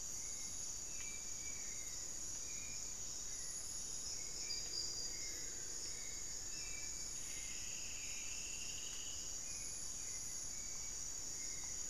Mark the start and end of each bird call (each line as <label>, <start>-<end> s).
Hauxwell's Thrush (Turdus hauxwelli), 0.0-11.9 s
Black-faced Antthrush (Formicarius analis), 4.3-7.0 s
Striped Woodcreeper (Xiphorhynchus obsoletus), 6.7-9.6 s